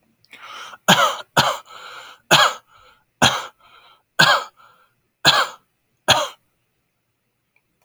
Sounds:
Cough